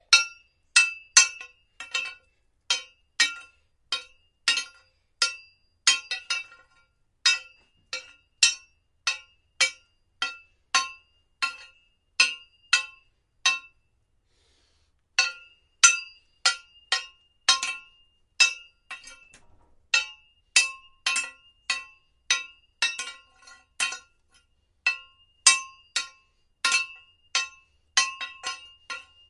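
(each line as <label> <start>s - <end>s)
Repeated metallic clangs from striking a heavy metal object. 0.0s - 13.9s
Repeated metallic clangs from striking a heavy metal object. 15.0s - 29.3s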